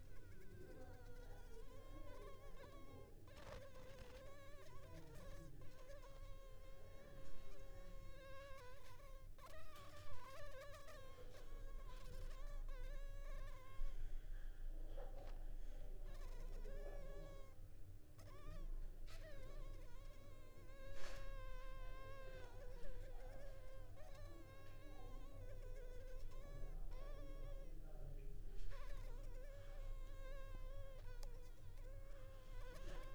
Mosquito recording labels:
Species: Anopheles funestus s.s.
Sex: female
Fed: unfed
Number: one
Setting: cup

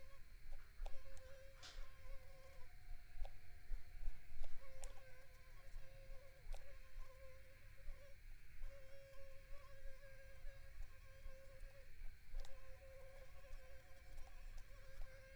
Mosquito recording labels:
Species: Culex pipiens complex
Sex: female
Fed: unfed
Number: one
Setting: cup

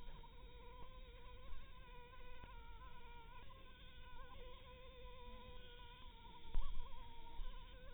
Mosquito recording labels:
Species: Anopheles harrisoni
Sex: female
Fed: blood-fed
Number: one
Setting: cup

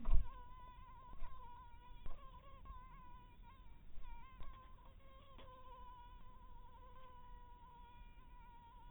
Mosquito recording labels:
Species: mosquito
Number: one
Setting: cup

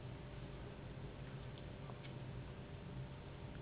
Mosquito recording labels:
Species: Anopheles gambiae s.s.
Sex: female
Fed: unfed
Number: one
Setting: insect culture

